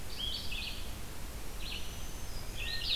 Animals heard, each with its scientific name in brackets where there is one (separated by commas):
Blue-headed Vireo (Vireo solitarius), Black-throated Green Warbler (Setophaga virens), Red-eyed Vireo (Vireo olivaceus), Hermit Thrush (Catharus guttatus)